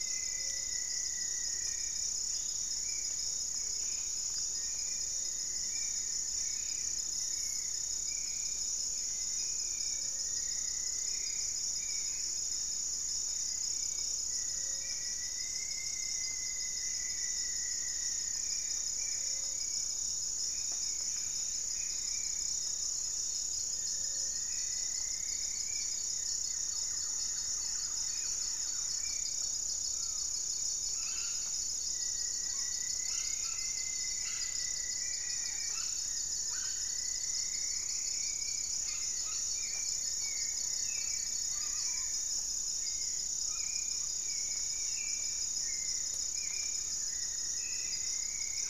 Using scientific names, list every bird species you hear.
Formicarius rufifrons, Leptotila rufaxilla, Pygiptila stellaris, Turdus hauxwelli, Akletos goeldii, Myrmelastes hyperythrus, unidentified bird, Campylorhynchus turdinus, Lipaugus vociferans, Orthopsittaca manilatus, Piprites chloris